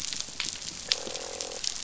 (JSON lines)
{"label": "biophony, croak", "recorder": "SoundTrap 500"}